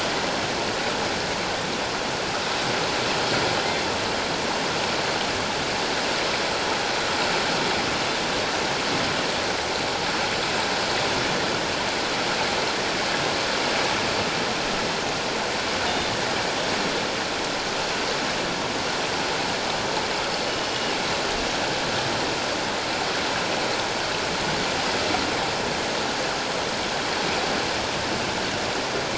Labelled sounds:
15.9	16.1	killer whale, northern resident, G clan, 3.5 to 3.7 kHz
20.5	20.7	killer whale, northern resident, G clan, 2.9 to 3.0 kHz

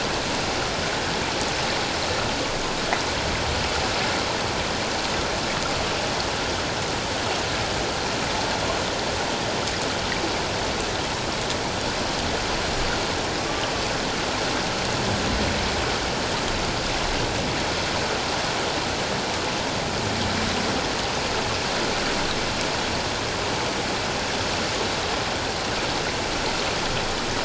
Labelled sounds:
13.5	13.7	humpback whale, 1.1 to 1.2 kHz

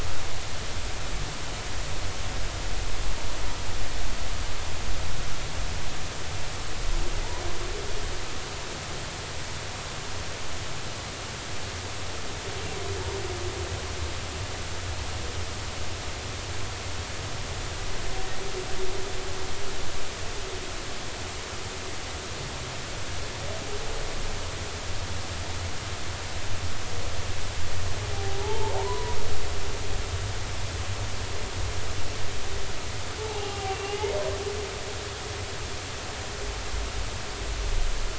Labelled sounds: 28.1	29.2	humpback whale, 0.80 to 1.1 kHz
33.2	34.1	humpback whale, 0.80 to 3.0 kHz

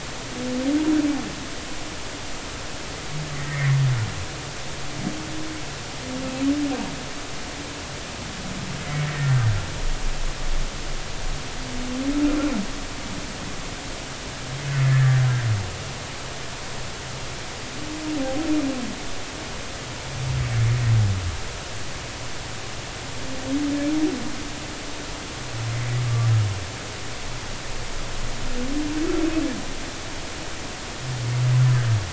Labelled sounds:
3.4	3.8	humpback whale, 1.8 to 2.3 kHz
9.0	9.4	humpback whale, 1.7 to 1.9 kHz
14.8	15.2	humpback whale, 1.7 to 1.9 kHz

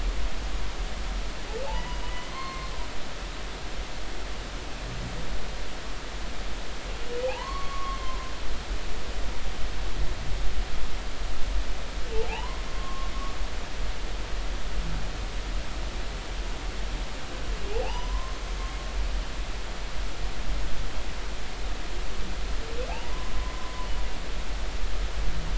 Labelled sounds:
1.7	2.7	humpback whale, 0.99 to 3.0 kHz
7.2	8.3	humpback whale, 0.80 to 3.1 kHz
12.3	13.1	humpback whale, 0.80 to 3.0 kHz
17.8	18.4	humpback whale, 0.80 to 6.1 kHz
22.9	23.9	humpback whale, 0.80 to 1.1 kHz

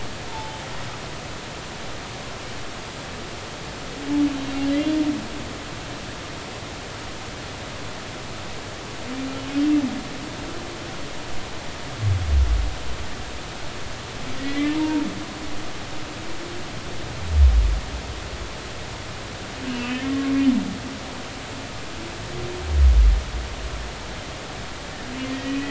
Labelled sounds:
0.3	0.6	humpback whale, 0.80 to 0.93 kHz
4.7	4.9	humpback whale, 3.0 to 3.2 kHz
14.4	15.0	humpback whale, 0.86 to 3.6 kHz
19.7	20.3	humpback whale, 1.1 to 2.8 kHz
25.3	25.6	humpback whale, 1.8 to 2.6 kHz

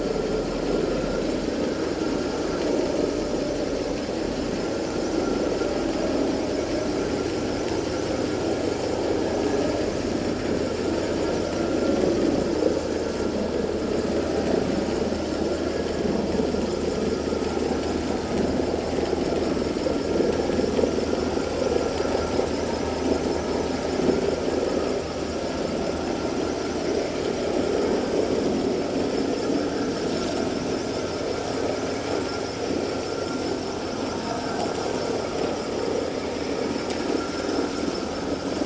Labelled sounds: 5.1	5.4	vessel noise, 1.3 to 1.4 kHz

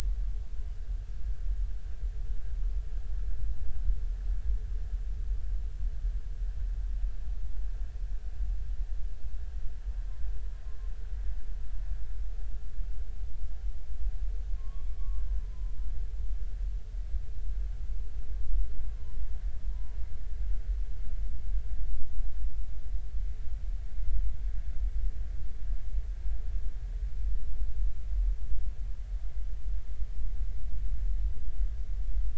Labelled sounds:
14.5	15.7	humpback whale, 0.93 to 1.2 kHz
18.9	20.0	humpback whale, 0.86 to 1.2 kHz

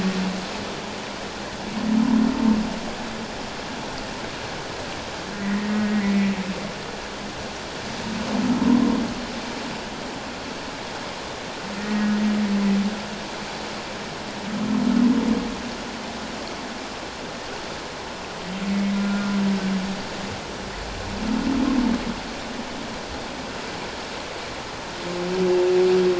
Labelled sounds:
5.3	6.3	humpback whale, 1.8 to 2.2 kHz
11.8	12.1	humpback whale, 1.8 to 1.9 kHz
18.9	19.4	humpback whale, 1.3 to 1.5 kHz

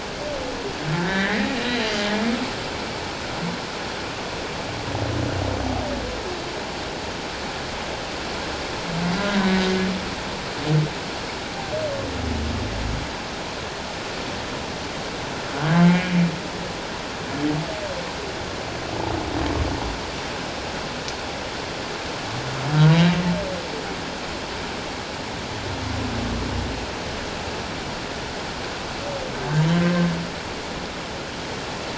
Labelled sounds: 0.9	1.9	humpback whale, 1.5 to 3.1 kHz
9.3	9.7	humpback whale, 1.5 to 1.7 kHz
15.7	16.2	humpback whale, 1.4 to 2.4 kHz

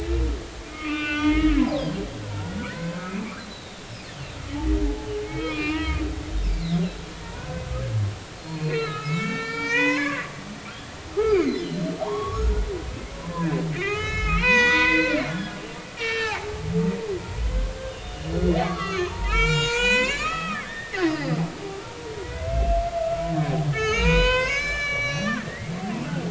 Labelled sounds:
1.0	2.0	humpback whale, 0.93 to 4.9 kHz
2.2	3.8	humpback whale, 0.96 to 4.2 kHz
5.2	6.0	humpback whale, 0.90 to 4.4 kHz
7.2	7.6	humpback whale, 0.86 to 1.6 kHz
8.5	10.3	humpback whale, 0.86 to 6.8 kHz
11.1	16.5	humpback whale, 0.80 to 7.0 kHz
17.9	21.4	humpback whale, 0.86 to 7.6 kHz
22.2	22.8	humpback whale, 1.9 to 2.8 kHz
23.7	26.2	humpback whale, 0.86 to 6.7 kHz

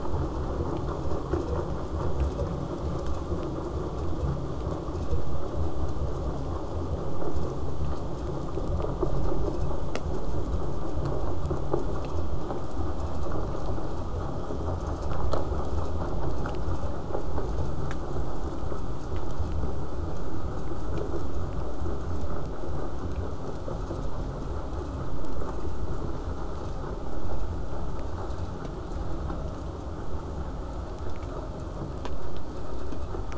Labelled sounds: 0.0	5.0	vessel noise, 0 to 8.0 kHz

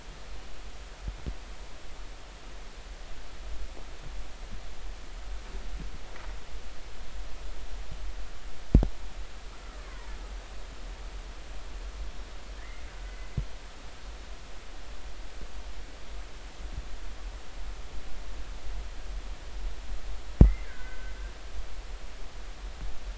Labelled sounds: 9.9	10.2	killer whale, Bigg's (transient), 0.86 to 1.1 kHz
12.6	13.3	killer whale, Bigg's (transient), 1.4 to 2.2 kHz
20.4	21.1	killer whale, Bigg's (transient), 1.4 to 2.1 kHz

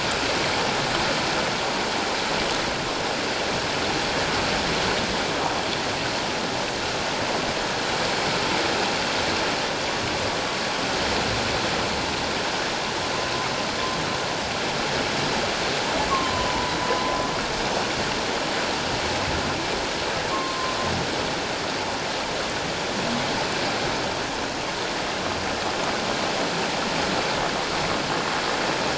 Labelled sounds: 16.1	16.7	humpback whale, 0.81 to 1.2 kHz
20.3	20.8	humpback whale, 0.97 to 1.1 kHz

